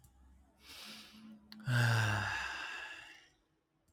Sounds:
Sigh